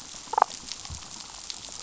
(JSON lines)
{"label": "biophony, damselfish", "recorder": "SoundTrap 500"}